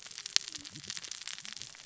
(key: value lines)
label: biophony, cascading saw
recorder: SoundTrap 600 or HydroMoth